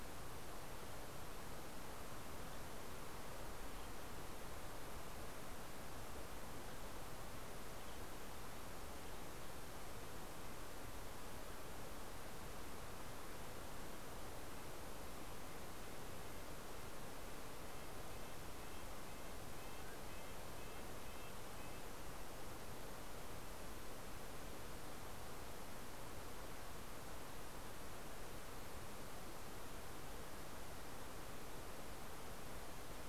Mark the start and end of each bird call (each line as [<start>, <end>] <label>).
[14.93, 21.93] Red-breasted Nuthatch (Sitta canadensis)